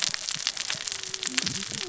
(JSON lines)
{"label": "biophony, cascading saw", "recorder": "SoundTrap 600 or HydroMoth"}